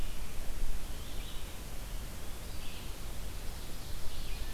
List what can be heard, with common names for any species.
Red-eyed Vireo, Ovenbird